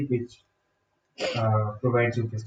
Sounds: Sneeze